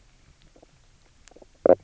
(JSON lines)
{"label": "biophony, knock croak", "recorder": "SoundTrap 300"}